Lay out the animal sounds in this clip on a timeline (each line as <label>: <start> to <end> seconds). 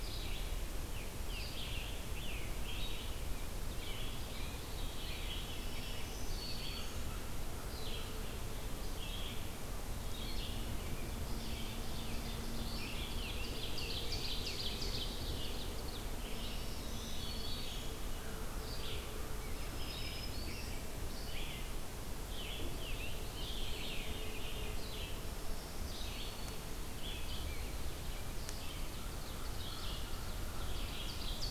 Red-eyed Vireo (Vireo olivaceus): 0.0 to 31.5 seconds
Scarlet Tanager (Piranga olivacea): 0.6 to 3.1 seconds
Veery (Catharus fuscescens): 4.6 to 6.1 seconds
Black-throated Green Warbler (Setophaga virens): 5.5 to 7.3 seconds
Ovenbird (Seiurus aurocapilla): 11.2 to 16.2 seconds
Scarlet Tanager (Piranga olivacea): 12.9 to 15.2 seconds
Black-throated Green Warbler (Setophaga virens): 16.3 to 18.1 seconds
Veery (Catharus fuscescens): 16.9 to 18.0 seconds
Black-throated Green Warbler (Setophaga virens): 19.4 to 20.9 seconds
Scarlet Tanager (Piranga olivacea): 22.2 to 24.9 seconds
Veery (Catharus fuscescens): 23.6 to 24.8 seconds
Black-throated Green Warbler (Setophaga virens): 25.2 to 26.9 seconds
American Crow (Corvus brachyrhynchos): 28.4 to 30.9 seconds
Ovenbird (Seiurus aurocapilla): 28.5 to 30.8 seconds